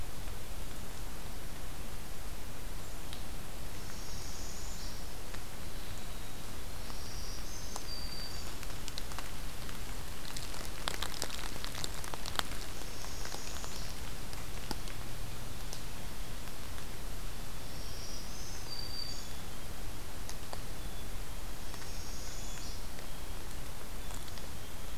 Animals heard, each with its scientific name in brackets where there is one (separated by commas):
Northern Parula (Setophaga americana), Black-capped Chickadee (Poecile atricapillus), Black-throated Green Warbler (Setophaga virens)